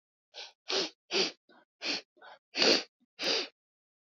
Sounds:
Sniff